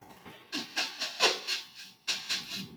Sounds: Sniff